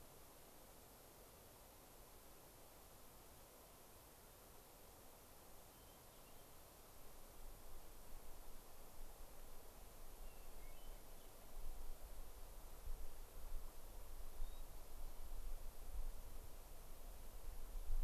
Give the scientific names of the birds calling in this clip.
Catharus guttatus